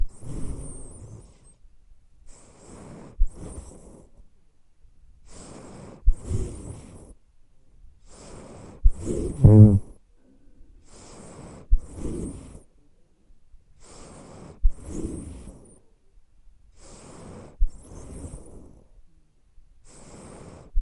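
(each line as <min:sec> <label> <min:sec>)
0:00.0 A cat breathing. 0:20.8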